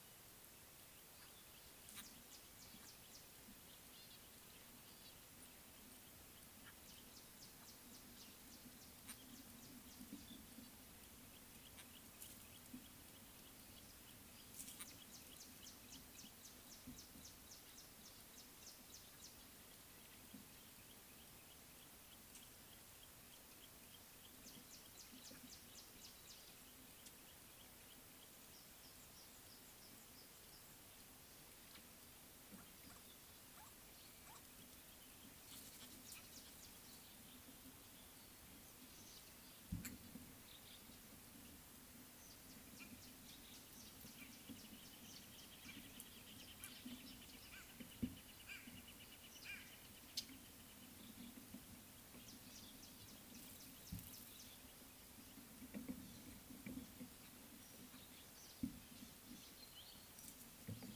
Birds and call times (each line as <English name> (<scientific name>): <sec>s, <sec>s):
Red-fronted Prinia (Prinia rufifrons): 17.2s, 25.3s